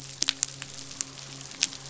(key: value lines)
label: biophony, midshipman
recorder: SoundTrap 500